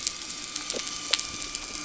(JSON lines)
{"label": "anthrophony, boat engine", "recorder": "SoundTrap 300"}